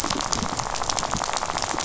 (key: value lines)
label: biophony, rattle
recorder: SoundTrap 500